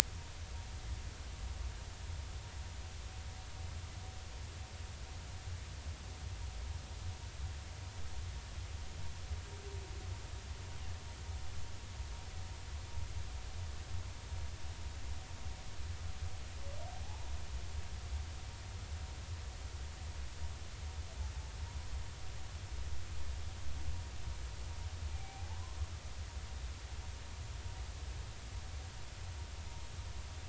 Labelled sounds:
17.0	17.3	humpback whale, 0.80 to 1.0 kHz
25.1	25.8	humpback whale, 0.80 to 2.5 kHz

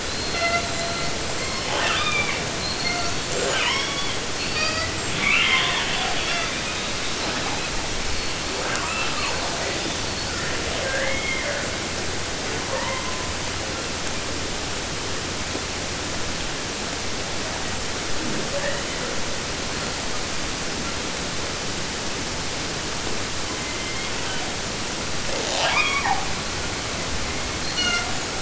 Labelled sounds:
0.0	1.2	killer whale, southern resident, J pod, call S42, 0.32 to 8.0 kHz
1.2	2.5	killer whale, southern resident, J pod, call S42 and call S44, 0.21 to 8.0 kHz
2.6	6.9	killer whale, southern resident, 0.08 to 8.0 kHz
7.0	8.3	killer whale, 0.28 to 6.6 kHz
8.4	10.0	killer whale, southern resident, 0.22 to 8.0 kHz
10.0	10.6	killer whale, 0.26 to 8.0 kHz
10.7	11.8	killer whale, southern resident, J pod, call S44, 0.26 to 8.0 kHz
12.4	13.4	killer whale, 0.24 to 4.1 kHz
18.2	19.3	killer whale, 0.04 to 4.2 kHz
23.3	24.4	killer whale, southern resident, J pod, call S01, 0.65 to 4.4 kHz
25.1	26.4	killer whale, southern resident, J pod, call S44, 0.15 to 8.0 kHz
27.2	28.4	killer whale, southern resident, J pod, call S42, 0.30 to 8.0 kHz

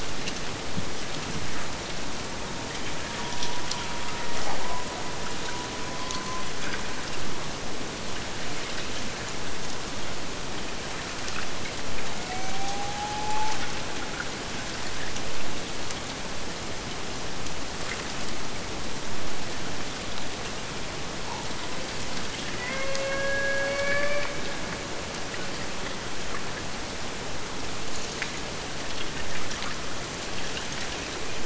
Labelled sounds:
2.2	6.7	killer whale, Bigg's (transient), AT1 transient, 0.60 to 2.3 kHz
12.0	13.8	killer whale, Bigg's (transient), AT1 transient, 0.67 to 2.9 kHz
22.5	24.5	killer whale, Bigg's (transient), AT1 transient, 0.44 to 5.4 kHz

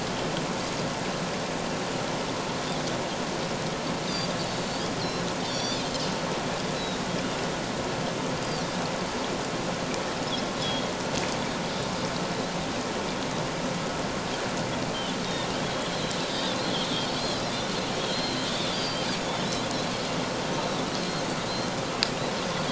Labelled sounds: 5.0	5.9	Pacific white-sided dolphin, 3.2 to 6.0 kHz
6.7	7.0	Pacific white-sided dolphin, 3.7 to 4.1 kHz
10.6	10.9	Pacific white-sided dolphin, 3.2 to 3.5 kHz
15.9	16.6	Pacific white-sided dolphin, 3.4 to 4.3 kHz
17.2	19.1	Pacific white-sided dolphin, 3.2 to 4.8 kHz

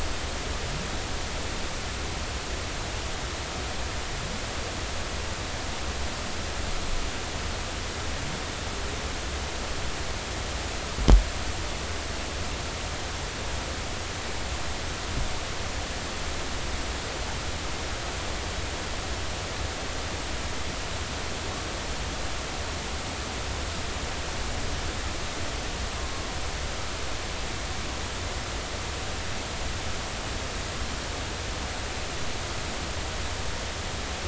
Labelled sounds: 25.9	26.3	humpback whale, 1.0 to 1.1 kHz

